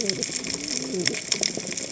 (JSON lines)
{"label": "biophony, cascading saw", "recorder": "HydroMoth"}